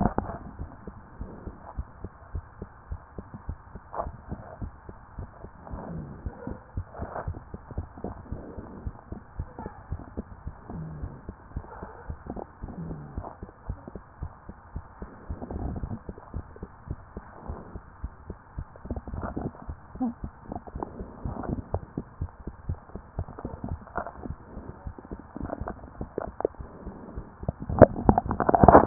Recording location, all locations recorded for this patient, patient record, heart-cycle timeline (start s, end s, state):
mitral valve (MV)
aortic valve (AV)+pulmonary valve (PV)+tricuspid valve (TV)+mitral valve (MV)
#Age: Child
#Sex: Female
#Height: 114.0 cm
#Weight: 26.4 kg
#Pregnancy status: False
#Murmur: Absent
#Murmur locations: nan
#Most audible location: nan
#Systolic murmur timing: nan
#Systolic murmur shape: nan
#Systolic murmur grading: nan
#Systolic murmur pitch: nan
#Systolic murmur quality: nan
#Diastolic murmur timing: nan
#Diastolic murmur shape: nan
#Diastolic murmur grading: nan
#Diastolic murmur pitch: nan
#Diastolic murmur quality: nan
#Outcome: Normal
#Campaign: 2014 screening campaign
0.00	0.58	unannotated
0.58	0.70	S1
0.70	0.86	systole
0.86	0.96	S2
0.96	1.20	diastole
1.20	1.30	S1
1.30	1.46	systole
1.46	1.56	S2
1.56	1.76	diastole
1.76	1.86	S1
1.86	2.02	systole
2.02	2.10	S2
2.10	2.34	diastole
2.34	2.44	S1
2.44	2.60	systole
2.60	2.68	S2
2.68	2.90	diastole
2.90	3.00	S1
3.00	3.16	systole
3.16	3.26	S2
3.26	3.48	diastole
3.48	3.58	S1
3.58	3.74	systole
3.74	3.82	S2
3.82	4.02	diastole
4.02	4.14	S1
4.14	4.30	systole
4.30	4.40	S2
4.40	4.60	diastole
4.60	4.72	S1
4.72	4.88	systole
4.88	4.98	S2
4.98	5.18	diastole
5.18	5.28	S1
5.28	5.42	systole
5.42	5.52	S2
5.52	5.74	diastole
5.74	5.82	S1
5.82	5.94	systole
5.94	6.06	S2
6.06	6.24	diastole
6.24	6.34	S1
6.34	6.48	systole
6.48	6.58	S2
6.58	6.76	diastole
6.76	6.86	S1
6.86	7.00	systole
7.00	7.08	S2
7.08	7.26	diastole
7.26	7.36	S1
7.36	7.52	systole
7.52	7.60	S2
7.60	7.80	diastole
7.80	7.88	S1
7.88	8.04	systole
8.04	8.14	S2
8.14	8.32	diastole
8.32	8.42	S1
8.42	8.56	systole
8.56	8.66	S2
8.66	8.84	diastole
8.84	8.94	S1
8.94	9.10	systole
9.10	9.20	S2
9.20	9.38	diastole
9.38	9.48	S1
9.48	9.60	systole
9.60	9.70	S2
9.70	9.90	diastole
9.90	10.02	S1
10.02	10.16	systole
10.16	10.26	S2
10.26	10.48	diastole
10.48	10.56	S1
10.56	10.72	systole
10.72	10.82	S2
10.82	11.00	diastole
11.00	11.12	S1
11.12	11.26	systole
11.26	11.34	S2
11.34	11.54	diastole
11.54	11.64	S1
11.64	11.80	systole
11.80	11.90	S2
11.90	12.08	diastole
12.08	12.18	S1
12.18	12.30	systole
12.30	12.42	S2
12.42	12.63	diastole
12.63	28.86	unannotated